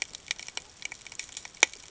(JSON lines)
{"label": "ambient", "recorder": "HydroMoth"}